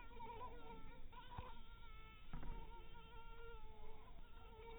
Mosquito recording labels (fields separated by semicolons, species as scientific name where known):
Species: mosquito; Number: one; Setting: cup